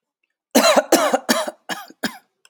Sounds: Cough